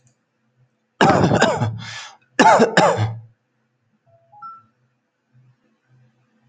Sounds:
Cough